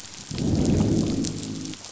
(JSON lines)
{"label": "biophony, growl", "recorder": "SoundTrap 500"}